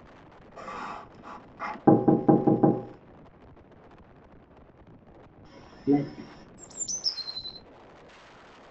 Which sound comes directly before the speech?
knock